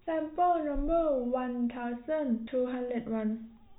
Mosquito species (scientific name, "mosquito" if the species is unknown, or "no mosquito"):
no mosquito